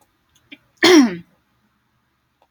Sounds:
Throat clearing